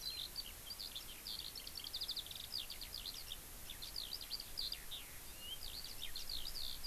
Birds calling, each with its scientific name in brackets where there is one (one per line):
Eurasian Skylark (Alauda arvensis)